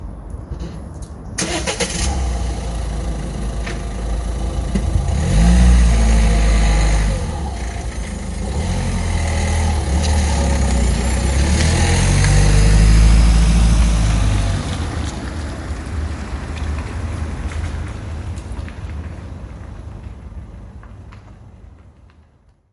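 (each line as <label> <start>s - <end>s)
An engine ignites. 1.3s - 4.3s
An engine starts with the ignition sound. 1.3s - 4.3s
Loud sound of gas escaping the exhaust pipe and the tires rotating as the vehicle moves. 4.5s - 20.9s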